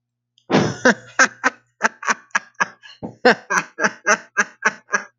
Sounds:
Laughter